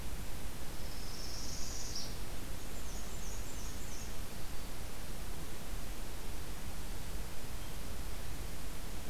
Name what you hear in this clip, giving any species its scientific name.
Setophaga americana, Mniotilta varia